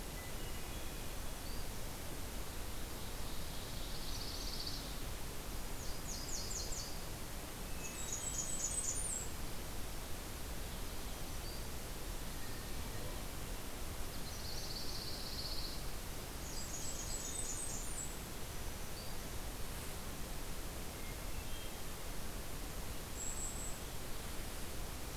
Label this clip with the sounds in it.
Hermit Thrush, Black-throated Green Warbler, Ovenbird, Pine Warbler, Nashville Warbler, Blackburnian Warbler, Golden-crowned Kinglet